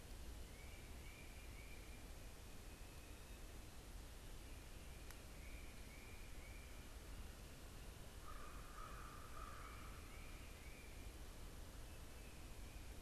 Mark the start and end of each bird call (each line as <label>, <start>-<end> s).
Tufted Titmouse (Baeolophus bicolor), 5.1-13.0 s
American Crow (Corvus brachyrhynchos), 8.1-10.0 s